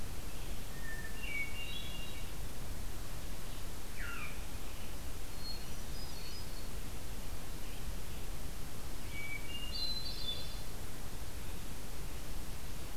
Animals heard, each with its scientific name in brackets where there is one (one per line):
Veery (Catharus fuscescens)
Red-eyed Vireo (Vireo olivaceus)
Hermit Thrush (Catharus guttatus)